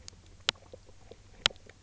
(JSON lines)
{"label": "biophony, knock croak", "recorder": "SoundTrap 300"}